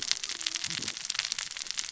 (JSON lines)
{"label": "biophony, cascading saw", "recorder": "SoundTrap 600 or HydroMoth"}